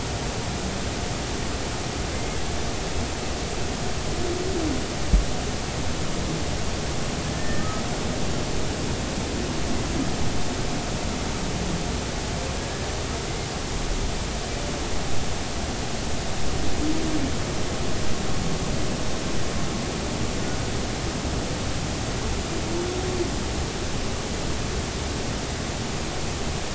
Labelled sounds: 2.1	2.4	humpback whale, 2.0 to 2.2 kHz
7.3	7.8	humpback whale, 1.2 to 1.9 kHz
12.6	12.8	humpback whale, 1.6 to 1.8 kHz

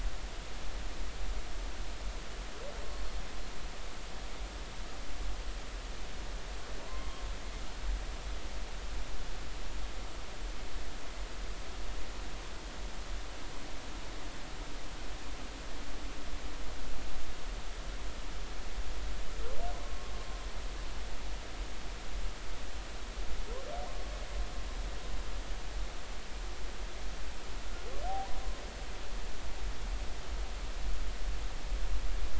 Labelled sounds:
2.9	3.1	humpback whale, 4.3 to 4.4 kHz
6.8	7.2	humpback whale, 0.90 to 2.2 kHz
19.8	20.1	humpback whale, 1.0 to 1.1 kHz

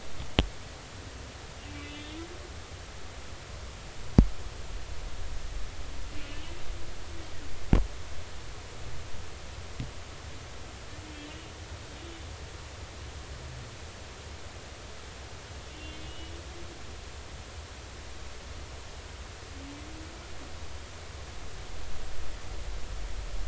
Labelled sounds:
1.8	2.2	humpback whale, 2.6 to 3.7 kHz
6.3	6.5	humpback whale, 2.8 to 3.0 kHz
15.7	16.3	humpback whale, 2.7 to 3.6 kHz

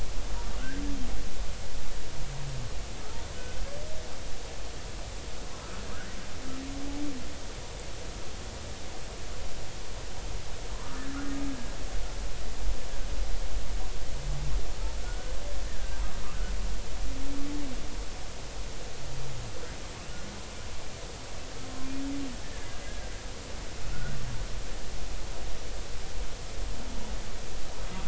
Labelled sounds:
10.7	11.1	humpback whale, 0.99 to 1.3 kHz
15.0	15.3	humpback whale, 1.4 to 1.6 kHz
22.4	23.1	humpback whale, 1.5 to 1.9 kHz
23.9	24.2	humpback whale, 1.3 to 1.6 kHz

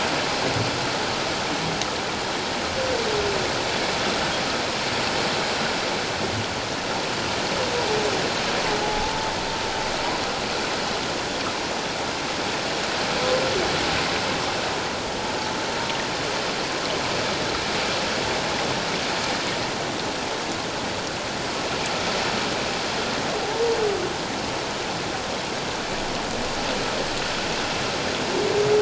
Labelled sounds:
8.8	9.2	humpback whale, 0.78 to 0.94 kHz

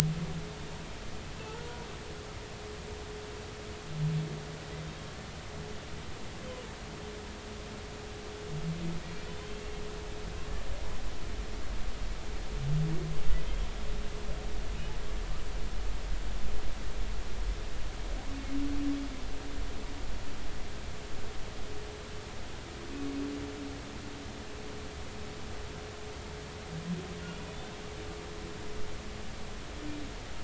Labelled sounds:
9.5	9.7	humpback whale, 2.6 to 2.8 kHz

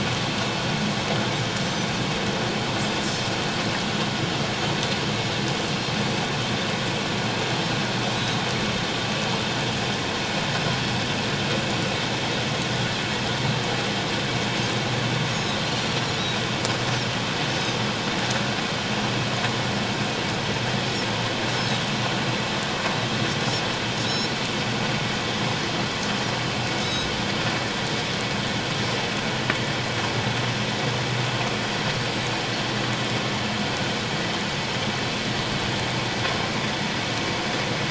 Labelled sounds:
24.0	24.3	Pacific white-sided dolphin, 3.7 to 4.1 kHz
26.8	27.1	Pacific white-sided dolphin, 3.7 to 4.0 kHz

